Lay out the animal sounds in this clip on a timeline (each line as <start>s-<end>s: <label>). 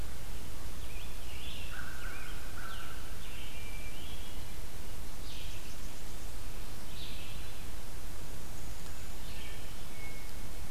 0.6s-4.6s: Scarlet Tanager (Piranga olivacea)
1.1s-10.7s: Red-eyed Vireo (Vireo olivaceus)
1.6s-2.8s: American Crow (Corvus brachyrhynchos)
3.2s-4.7s: Hermit Thrush (Catharus guttatus)
5.1s-6.6s: Blackburnian Warbler (Setophaga fusca)
9.1s-10.5s: Hermit Thrush (Catharus guttatus)